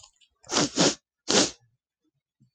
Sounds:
Sniff